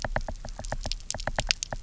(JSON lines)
{"label": "biophony, knock", "recorder": "SoundTrap 300"}